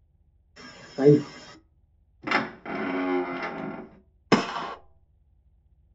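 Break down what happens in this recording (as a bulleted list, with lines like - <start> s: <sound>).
- 1.0 s: a voice says "five"
- 2.2 s: a wooden door opens
- 4.3 s: gunfire can be heard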